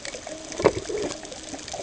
{"label": "ambient", "recorder": "HydroMoth"}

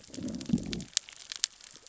{"label": "biophony, growl", "recorder": "SoundTrap 600 or HydroMoth"}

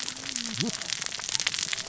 {"label": "biophony, cascading saw", "recorder": "SoundTrap 600 or HydroMoth"}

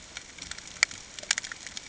{"label": "ambient", "recorder": "HydroMoth"}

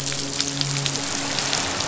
{"label": "biophony, midshipman", "recorder": "SoundTrap 500"}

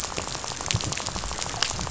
{"label": "biophony, rattle", "recorder": "SoundTrap 500"}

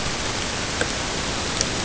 {"label": "ambient", "recorder": "HydroMoth"}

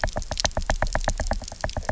{"label": "biophony, knock", "recorder": "SoundTrap 300"}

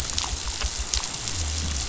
{"label": "biophony", "recorder": "SoundTrap 500"}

